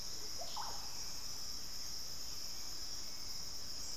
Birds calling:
Hauxwell's Thrush (Turdus hauxwelli), Russet-backed Oropendola (Psarocolius angustifrons), Undulated Tinamou (Crypturellus undulatus)

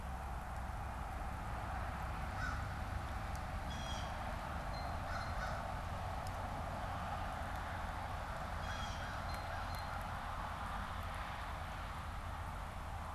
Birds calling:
Blue Jay (Cyanocitta cristata), American Crow (Corvus brachyrhynchos)

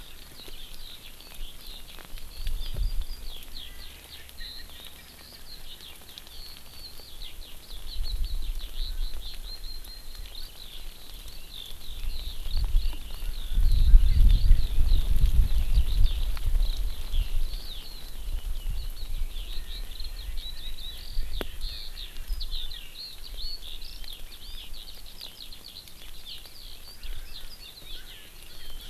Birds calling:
Eurasian Skylark (Alauda arvensis), Erckel's Francolin (Pternistis erckelii)

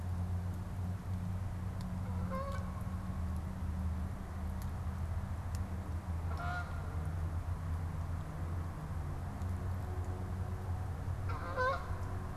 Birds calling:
Canada Goose (Branta canadensis)

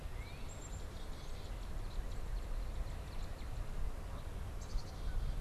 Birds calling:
Black-capped Chickadee (Poecile atricapillus), Northern Cardinal (Cardinalis cardinalis)

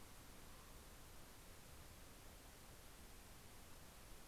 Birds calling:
Common Raven (Corvus corax)

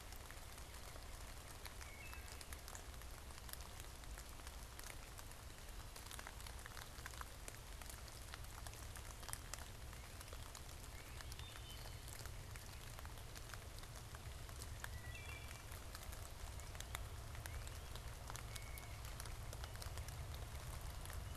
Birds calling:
Blue Jay (Cyanocitta cristata), Wood Thrush (Hylocichla mustelina), Northern Cardinal (Cardinalis cardinalis)

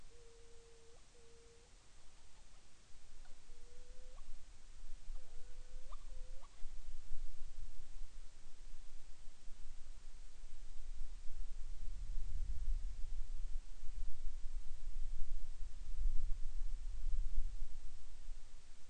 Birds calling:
Hawaiian Petrel (Pterodroma sandwichensis)

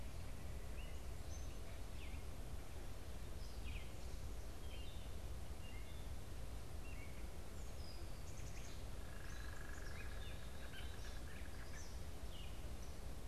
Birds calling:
Black-capped Chickadee (Poecile atricapillus), unidentified bird, Gray Catbird (Dumetella carolinensis), Eastern Kingbird (Tyrannus tyrannus), American Robin (Turdus migratorius)

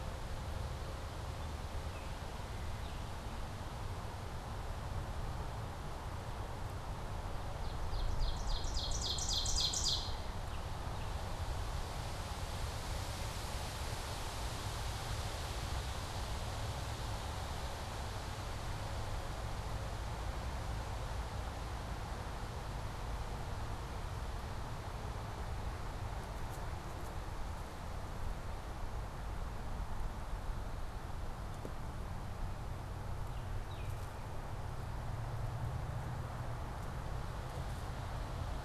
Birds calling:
Baltimore Oriole (Icterus galbula), Ovenbird (Seiurus aurocapilla)

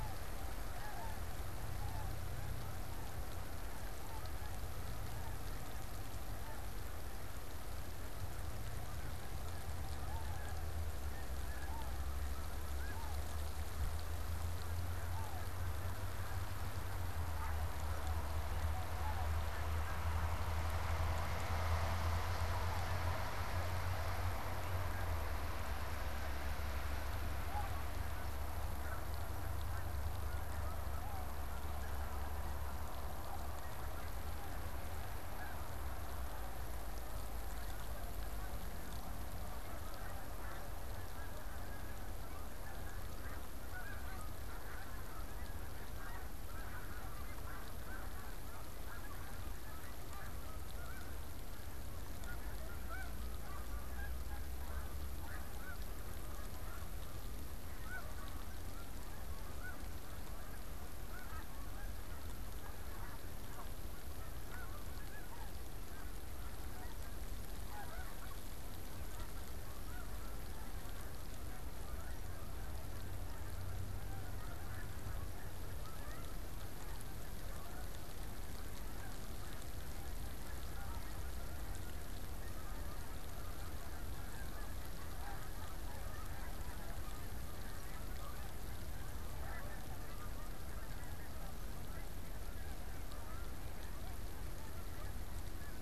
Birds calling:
Snow Goose (Anser caerulescens), Tundra Swan (Cygnus columbianus), unidentified bird, Canada Goose (Branta canadensis)

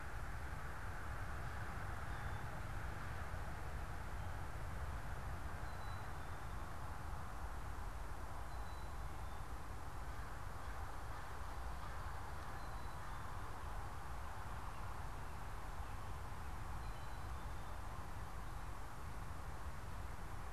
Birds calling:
Black-capped Chickadee (Poecile atricapillus)

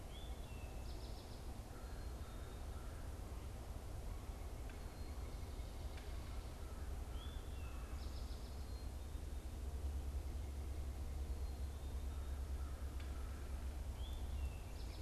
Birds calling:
Eastern Towhee (Pipilo erythrophthalmus), American Crow (Corvus brachyrhynchos)

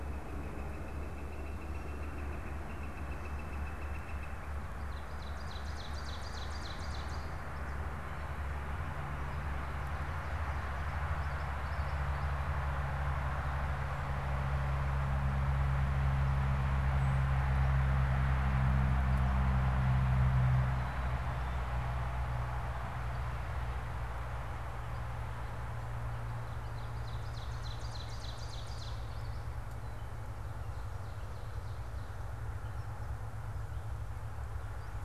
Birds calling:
Ovenbird (Seiurus aurocapilla), Northern Flicker (Colaptes auratus), Common Yellowthroat (Geothlypis trichas), Black-capped Chickadee (Poecile atricapillus)

